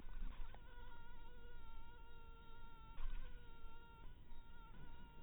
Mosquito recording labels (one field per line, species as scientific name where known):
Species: mosquito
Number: one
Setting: cup